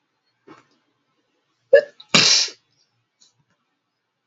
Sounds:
Sneeze